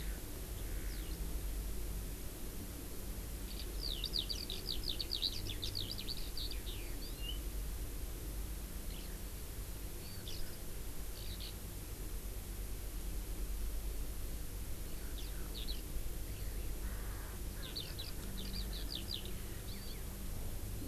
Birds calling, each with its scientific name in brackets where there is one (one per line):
Eurasian Skylark (Alauda arvensis)
Erckel's Francolin (Pternistis erckelii)